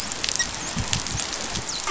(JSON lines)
{"label": "biophony, dolphin", "recorder": "SoundTrap 500"}